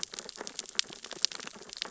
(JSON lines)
{"label": "biophony, sea urchins (Echinidae)", "recorder": "SoundTrap 600 or HydroMoth"}